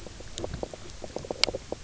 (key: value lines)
label: biophony, knock croak
recorder: SoundTrap 300